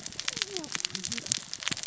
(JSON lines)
{"label": "biophony, cascading saw", "recorder": "SoundTrap 600 or HydroMoth"}